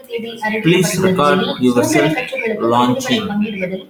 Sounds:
Laughter